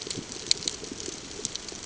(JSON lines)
{"label": "ambient", "recorder": "HydroMoth"}